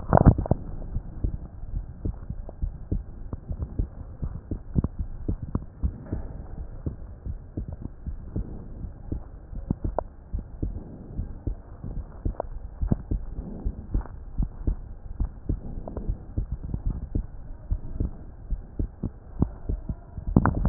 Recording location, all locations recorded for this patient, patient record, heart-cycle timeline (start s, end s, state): aortic valve (AV)
aortic valve (AV)+pulmonary valve (PV)+tricuspid valve (TV)+mitral valve (MV)
#Age: Child
#Sex: Female
#Height: 140.0 cm
#Weight: 29.0 kg
#Pregnancy status: False
#Murmur: Absent
#Murmur locations: nan
#Most audible location: nan
#Systolic murmur timing: nan
#Systolic murmur shape: nan
#Systolic murmur grading: nan
#Systolic murmur pitch: nan
#Systolic murmur quality: nan
#Diastolic murmur timing: nan
#Diastolic murmur shape: nan
#Diastolic murmur grading: nan
#Diastolic murmur pitch: nan
#Diastolic murmur quality: nan
#Outcome: Normal
#Campaign: 2015 screening campaign
0.00	5.72	unannotated
5.72	5.82	diastole
5.82	5.96	S1
5.96	6.12	systole
6.12	6.22	S2
6.22	6.56	diastole
6.56	6.68	S1
6.68	6.84	systole
6.84	6.92	S2
6.92	7.28	diastole
7.28	7.38	S1
7.38	7.56	systole
7.56	7.66	S2
7.66	8.08	diastole
8.08	8.20	S1
8.20	8.32	systole
8.32	8.44	S2
8.44	8.80	diastole
8.80	8.92	S1
8.92	9.08	systole
9.08	9.20	S2
9.20	9.56	diastole
9.56	9.64	S1
9.64	9.82	systole
9.82	9.96	S2
9.96	10.32	diastole
10.32	10.46	S1
10.46	10.62	systole
10.62	10.74	S2
10.74	11.16	diastole
11.16	11.28	S1
11.28	11.48	systole
11.48	11.58	S2
11.58	11.94	diastole
11.94	12.06	S1
12.06	12.24	systole
12.24	12.36	S2
12.36	12.79	diastole
12.79	12.98	S1
12.98	13.09	systole
13.09	13.24	S2
13.24	13.62	diastole
13.62	13.78	S1
13.78	13.92	systole
13.92	14.04	S2
14.04	14.36	diastole
14.36	14.52	S1
14.52	14.64	systole
14.64	14.80	S2
14.80	15.18	diastole
15.18	15.32	S1
15.32	15.48	systole
15.48	15.60	S2
15.60	16.06	diastole
16.06	16.18	S1
16.18	16.36	systole
16.36	16.50	S2
16.50	16.86	diastole
16.86	17.02	S1
17.02	17.14	systole
17.14	17.28	S2
17.28	17.66	diastole
17.66	17.78	S1
17.78	17.96	systole
17.96	18.12	S2
18.12	18.50	diastole
18.50	18.62	S1
18.62	18.78	systole
18.78	18.92	S2
18.92	19.40	diastole
19.40	20.69	unannotated